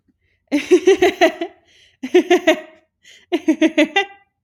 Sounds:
Laughter